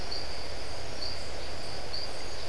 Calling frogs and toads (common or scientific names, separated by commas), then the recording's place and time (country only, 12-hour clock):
marbled tropical bullfrog
Brazil, 5:30pm